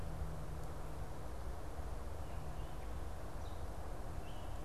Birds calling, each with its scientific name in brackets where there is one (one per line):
Gray Catbird (Dumetella carolinensis)